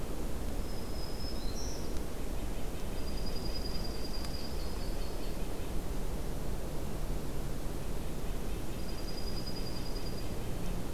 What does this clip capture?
Black-throated Green Warbler, Red-breasted Nuthatch, Dark-eyed Junco, Yellow-rumped Warbler